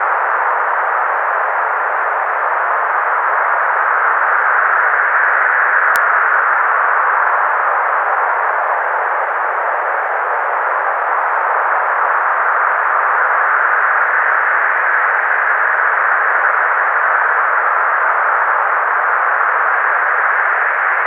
does the sound stop?
no